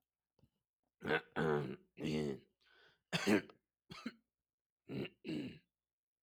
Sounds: Throat clearing